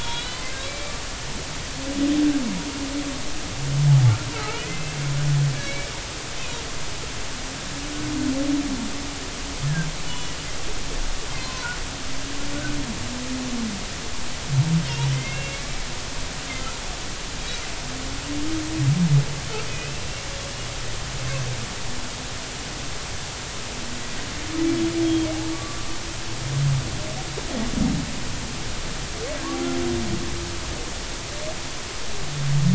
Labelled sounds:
0.0	1.0	humpback whale, 2.0 to 4.8 kHz
4.4	5.0	humpback whale, 1.2 to 2.7 kHz
5.5	5.9	humpback whale, 2.1 to 2.3 kHz
10.1	10.4	humpback whale, 2.8 to 3.0 kHz
11.4	11.7	humpback whale, 0.90 to 1.1 kHz
15.2	15.9	humpback whale, 2.0 to 2.8 kHz
19.7	20.0	humpback whale, 2.4 to 2.7 kHz
25.0	25.9	humpback whale, 1.1 to 3.3 kHz

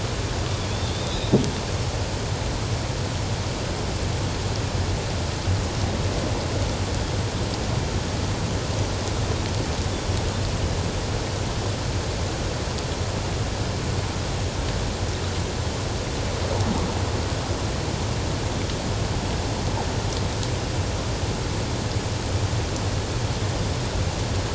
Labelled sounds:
0.9	1.3	Pacific white-sided dolphin, 3.2 to 4.0 kHz

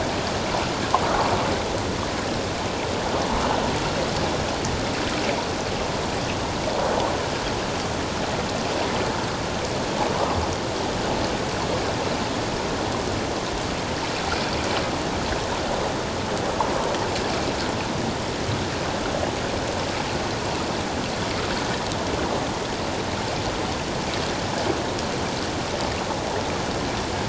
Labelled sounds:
1.0	1.3	water noise, 1.0 to 1.5 kHz

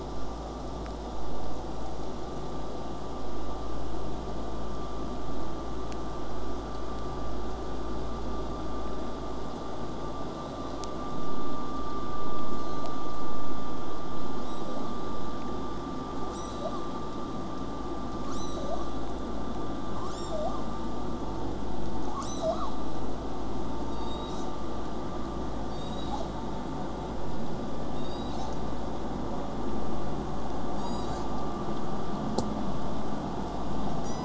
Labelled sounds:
12.5	12.9	killer whale, southern resident, J pod, 3.5 to 8.0 kHz
18.3	19.2	killer whale, southern resident, J pod, call S02ii, 3.2 to 8.0 kHz
20.0	20.9	killer whale, southern resident, J pod, call S02ii, 0.50 to 8.0 kHz
22.1	22.8	killer whale, southern resident, J pod, call S02ii, 0.50 to 8.0 kHz

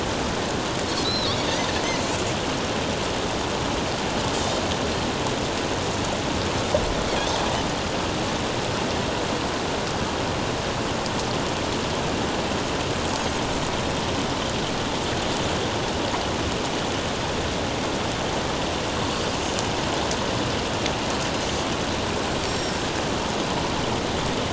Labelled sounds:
1.0	1.3	Pacific white-sided dolphin, 3.6 to 4.2 kHz
4.3	4.6	Pacific white-sided dolphin, 5.3 to 7.1 kHz
22.4	22.7	Pacific white-sided dolphin, 5.4 to 5.7 kHz

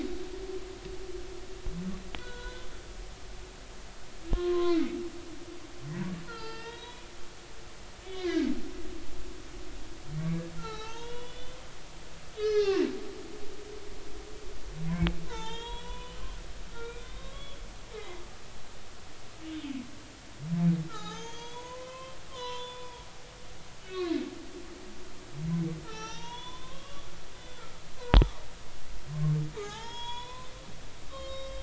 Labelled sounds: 2.2	2.7	humpback whale, 0.93 to 3.5 kHz
4.3	5.0	humpback whale, 0.96 to 3.9 kHz
6.2	7.1	humpback whale, 0.83 to 5.1 kHz
8.0	8.5	humpback whale, 1.5 to 2.6 kHz
10.6	11.6	humpback whale, 0.80 to 6.1 kHz
12.4	12.9	humpback whale, 0.80 to 6.1 kHz
15.3	16.3	humpback whale, 0.83 to 4.0 kHz
16.7	17.6	humpback whale, 1.0 to 3.8 kHz
18.0	18.2	humpback whale, 2.0 to 2.2 kHz
20.9	22.9	humpback whale, 0.80 to 6.6 kHz
23.8	24.2	humpback whale, 1.7 to 2.7 kHz
25.8	27.1	humpback whale, 0.83 to 6.2 kHz
27.3	27.6	humpback whale, 3.4 to 3.6 kHz
29.5	30.5	humpback whale, 0.80 to 7.0 kHz
31.1	31.6	humpback whale, 1.0 to 4.4 kHz

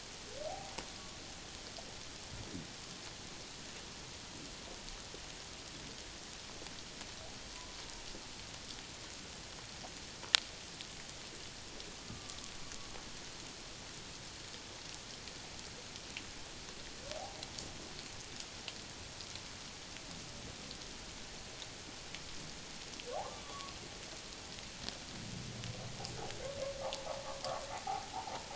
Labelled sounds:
0.5	0.7	humpback whale, 0.78 to 0.84 kHz
12.1	12.4	humpback whale, 1.1 to 1.2 kHz
23.4	23.7	humpback whale, 0.97 to 1.2 kHz

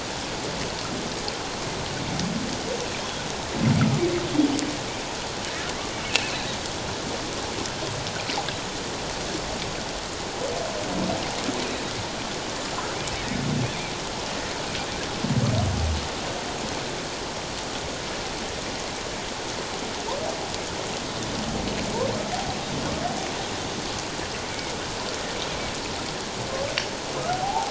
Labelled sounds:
6.1	6.4	killer whale, offshore, call OFF07, 2.5 to 2.8 kHz
27.3	27.7	humpback whale, 0.78 to 0.97 kHz

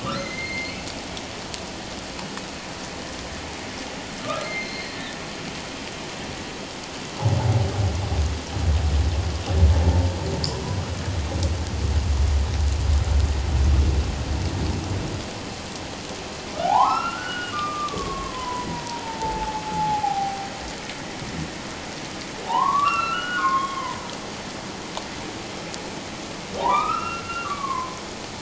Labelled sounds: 0.0	0.8	humpback whale, 1.1 to 4.2 kHz
4.2	5.0	humpback whale, 1.1 to 4.3 kHz
16.5	20.5	humpback whale, 0.78 to 4.2 kHz
22.4	24.0	humpback whale, 0.78 to 3.3 kHz
26.6	28.0	humpback whale, 0.78 to 2.8 kHz

